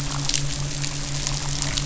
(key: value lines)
label: biophony, midshipman
recorder: SoundTrap 500